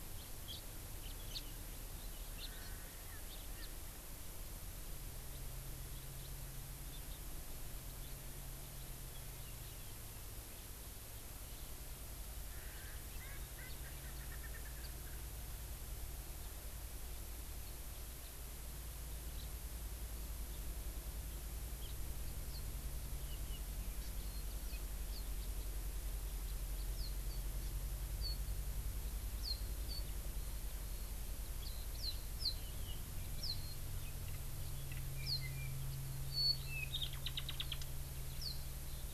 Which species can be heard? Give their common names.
House Finch, Erckel's Francolin, Hawaii Amakihi